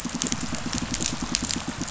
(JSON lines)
{"label": "biophony, pulse", "recorder": "SoundTrap 500"}